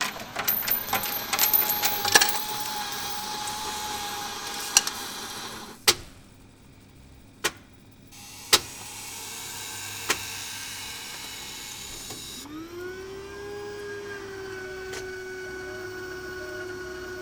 is there a series of clicks?
yes